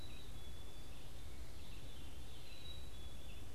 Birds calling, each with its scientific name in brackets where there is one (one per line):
Black-capped Chickadee (Poecile atricapillus)
Veery (Catharus fuscescens)
Red-eyed Vireo (Vireo olivaceus)